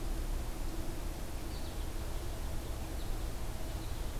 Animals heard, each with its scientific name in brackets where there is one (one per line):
American Goldfinch (Spinus tristis)